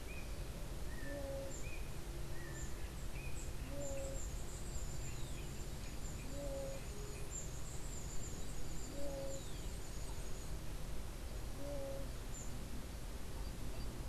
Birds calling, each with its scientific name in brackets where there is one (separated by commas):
Scrub Tanager (Stilpnia vitriolina), unidentified bird